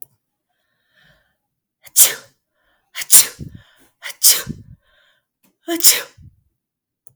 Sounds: Sneeze